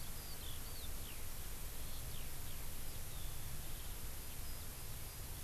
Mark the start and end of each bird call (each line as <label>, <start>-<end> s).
Eurasian Skylark (Alauda arvensis), 0.0-5.4 s